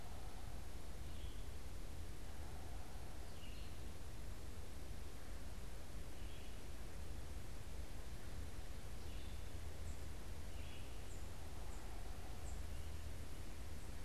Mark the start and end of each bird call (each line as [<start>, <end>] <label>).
[0.00, 11.17] Red-eyed Vireo (Vireo olivaceus)
[9.67, 12.87] Tufted Titmouse (Baeolophus bicolor)